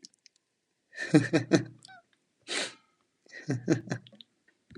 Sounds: Laughter